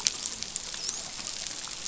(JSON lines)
{"label": "biophony, dolphin", "recorder": "SoundTrap 500"}